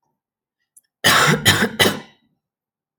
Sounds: Cough